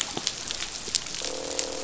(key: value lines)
label: biophony, croak
recorder: SoundTrap 500